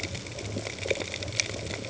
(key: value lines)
label: ambient
recorder: HydroMoth